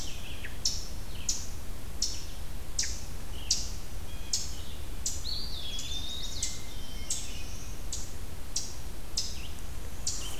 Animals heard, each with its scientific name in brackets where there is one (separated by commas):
Red-eyed Vireo (Vireo olivaceus), Eastern Wood-Pewee (Contopus virens), Eastern Chipmunk (Tamias striatus), Hermit Thrush (Catharus guttatus)